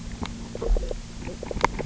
{"label": "biophony, knock croak", "recorder": "SoundTrap 300"}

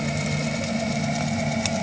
{"label": "anthrophony, boat engine", "recorder": "HydroMoth"}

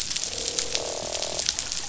{"label": "biophony, croak", "recorder": "SoundTrap 500"}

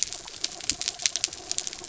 {"label": "anthrophony, mechanical", "recorder": "SoundTrap 300"}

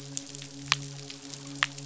{"label": "biophony, midshipman", "recorder": "SoundTrap 500"}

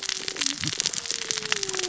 {"label": "biophony, cascading saw", "recorder": "SoundTrap 600 or HydroMoth"}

